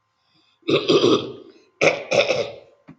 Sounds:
Throat clearing